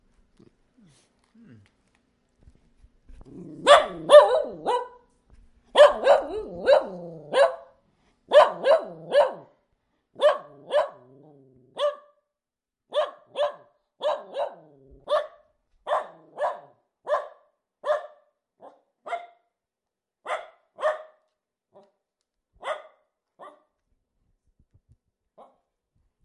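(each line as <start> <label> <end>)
3.3 Repeated high-pitched dog barks, evenly spaced and non-overlapping. 23.7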